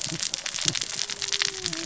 {"label": "biophony, cascading saw", "recorder": "SoundTrap 600 or HydroMoth"}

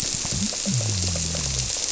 {"label": "biophony", "recorder": "SoundTrap 300"}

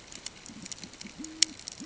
{"label": "ambient", "recorder": "HydroMoth"}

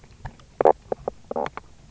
{"label": "biophony, knock croak", "recorder": "SoundTrap 300"}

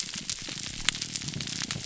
{"label": "biophony, grouper groan", "recorder": "SoundTrap 300"}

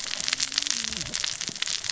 {"label": "biophony, cascading saw", "recorder": "SoundTrap 600 or HydroMoth"}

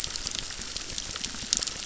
{"label": "biophony, crackle", "recorder": "SoundTrap 600"}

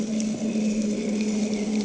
{"label": "anthrophony, boat engine", "recorder": "HydroMoth"}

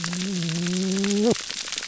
{"label": "biophony, whup", "recorder": "SoundTrap 300"}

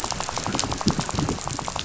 {"label": "biophony, rattle", "recorder": "SoundTrap 500"}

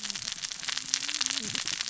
{"label": "biophony, cascading saw", "recorder": "SoundTrap 600 or HydroMoth"}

